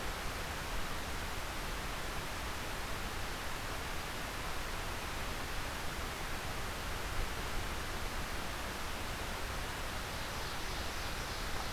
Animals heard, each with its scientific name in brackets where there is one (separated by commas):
Ovenbird (Seiurus aurocapilla)